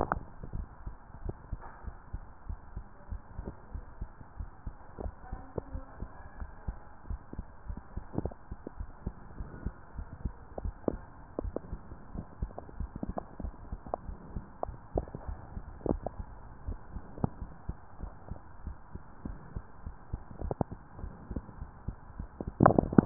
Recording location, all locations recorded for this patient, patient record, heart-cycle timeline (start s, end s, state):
mitral valve (MV)
aortic valve (AV)+pulmonary valve (PV)+tricuspid valve (TV)+mitral valve (MV)
#Age: Child
#Sex: Male
#Height: 139.0 cm
#Weight: 44.4 kg
#Pregnancy status: False
#Murmur: Absent
#Murmur locations: nan
#Most audible location: nan
#Systolic murmur timing: nan
#Systolic murmur shape: nan
#Systolic murmur grading: nan
#Systolic murmur pitch: nan
#Systolic murmur quality: nan
#Diastolic murmur timing: nan
#Diastolic murmur shape: nan
#Diastolic murmur grading: nan
#Diastolic murmur pitch: nan
#Diastolic murmur quality: nan
#Outcome: Normal
#Campaign: 2015 screening campaign
0.00	0.68	unannotated
0.68	0.84	systole
0.84	0.94	S2
0.94	1.20	diastole
1.20	1.36	S1
1.36	1.50	systole
1.50	1.60	S2
1.60	1.84	diastole
1.84	1.94	S1
1.94	2.10	systole
2.10	2.22	S2
2.22	2.46	diastole
2.46	2.60	S1
2.60	2.74	systole
2.74	2.84	S2
2.84	3.08	diastole
3.08	3.22	S1
3.22	3.38	systole
3.38	3.54	S2
3.54	3.72	diastole
3.72	3.84	S1
3.84	3.98	systole
3.98	4.12	S2
4.12	4.36	diastole
4.36	4.50	S1
4.50	4.64	systole
4.64	4.74	S2
4.74	4.98	diastole
4.98	5.12	S1
5.12	5.30	systole
5.30	5.44	S2
5.44	5.72	diastole
5.72	5.84	S1
5.84	6.00	systole
6.00	6.12	S2
6.12	6.38	diastole
6.38	6.52	S1
6.52	6.66	systole
6.66	6.80	S2
6.80	7.08	diastole
7.08	7.20	S1
7.20	7.32	systole
7.32	7.46	S2
7.46	7.66	diastole
7.66	7.76	S1
7.76	7.91	systole
7.91	8.00	S2
8.00	8.14	diastole
8.14	8.32	S1
8.32	8.48	systole
8.48	8.56	S2
8.56	8.78	diastole
8.78	8.90	S1
8.90	9.04	systole
9.04	9.14	S2
9.14	9.38	diastole
9.38	9.52	S1
9.52	9.64	systole
9.64	9.74	S2
9.74	9.96	diastole
9.96	10.08	S1
10.08	10.22	systole
10.22	10.36	S2
10.36	10.60	diastole
10.60	10.76	S1
10.76	10.87	systole
10.87	11.02	S2
11.02	11.34	diastole
11.34	11.52	S1
11.52	11.70	systole
11.70	11.80	S2
11.80	12.10	diastole
12.10	12.26	S1
12.26	12.40	systole
12.40	12.54	S2
12.54	12.78	diastole
12.78	12.92	S1
12.92	13.04	systole
13.04	13.16	S2
13.16	13.38	diastole
13.38	13.56	S1
13.56	13.70	systole
13.70	13.80	S2
13.80	14.06	diastole
14.06	14.20	S1
14.20	14.34	systole
14.34	14.44	S2
14.44	14.68	diastole
14.68	23.06	unannotated